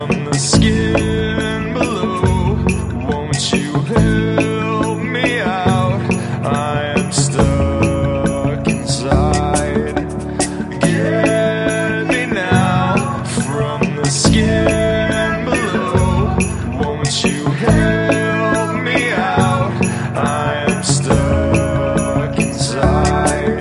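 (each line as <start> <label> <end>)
0.0 A song with vocals, drums, and strings is being played. 23.6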